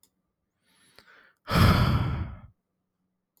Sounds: Sigh